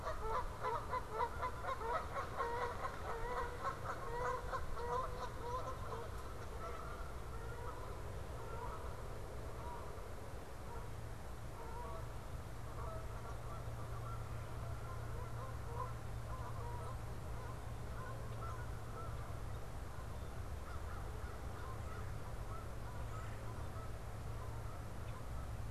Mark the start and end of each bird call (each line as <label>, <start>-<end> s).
Canada Goose (Branta canadensis), 0.0-25.5 s
Red-bellied Woodpecker (Melanerpes carolinus), 21.9-22.3 s
Red-bellied Woodpecker (Melanerpes carolinus), 22.9-23.5 s